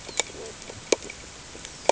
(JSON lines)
{"label": "ambient", "recorder": "HydroMoth"}